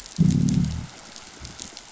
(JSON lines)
{"label": "biophony, growl", "recorder": "SoundTrap 500"}